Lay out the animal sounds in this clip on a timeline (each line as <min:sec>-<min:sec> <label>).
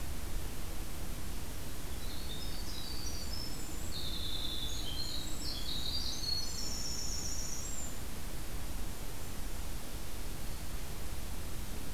0:01.9-0:07.9 Winter Wren (Troglodytes hiemalis)